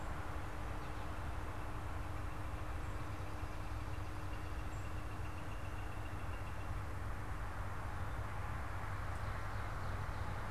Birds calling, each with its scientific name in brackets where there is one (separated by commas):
Northern Flicker (Colaptes auratus)